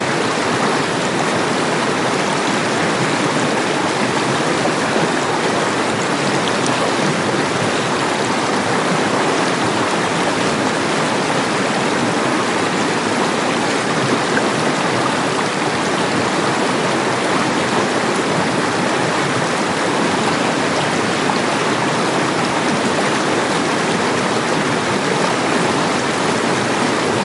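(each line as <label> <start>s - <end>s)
A river flows over a difference in height, creating the sound of a small waterfall. 0.0s - 27.2s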